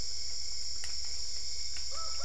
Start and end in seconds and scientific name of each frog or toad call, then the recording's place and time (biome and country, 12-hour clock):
none
Cerrado, Brazil, 3:45am